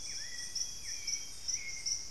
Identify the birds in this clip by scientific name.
Cyanoloxia rothschildii, Turdus hauxwelli, Cacicus solitarius